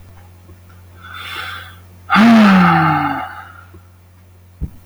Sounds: Sigh